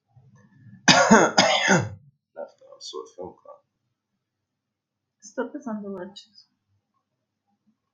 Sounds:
Throat clearing